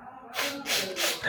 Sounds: Sniff